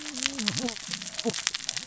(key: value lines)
label: biophony, cascading saw
recorder: SoundTrap 600 or HydroMoth